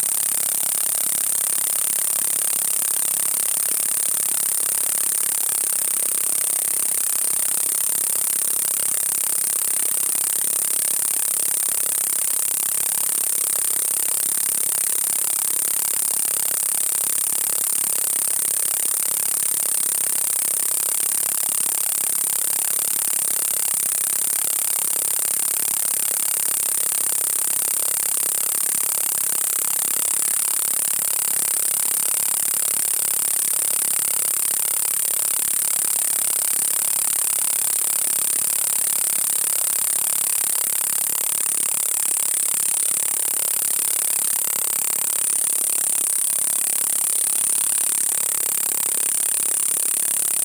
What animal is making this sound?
Gampsocleis glabra, an orthopteran